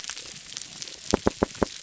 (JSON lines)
{"label": "biophony", "recorder": "SoundTrap 300"}